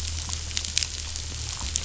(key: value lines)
label: anthrophony, boat engine
recorder: SoundTrap 500